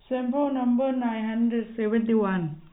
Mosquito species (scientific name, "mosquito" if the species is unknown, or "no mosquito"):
no mosquito